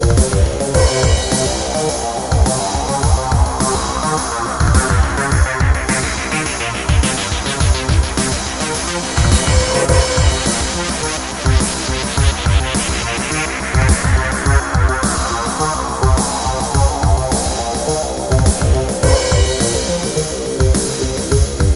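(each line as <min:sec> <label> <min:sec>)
0:00.0 Electronic drum and bass music is playing. 0:21.8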